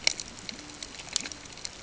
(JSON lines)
{"label": "ambient", "recorder": "HydroMoth"}